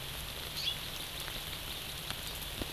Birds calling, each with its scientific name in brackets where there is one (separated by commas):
Hawaii Amakihi (Chlorodrepanis virens)